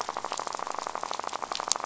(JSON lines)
{"label": "biophony, rattle", "recorder": "SoundTrap 500"}